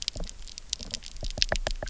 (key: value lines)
label: biophony, knock
recorder: SoundTrap 300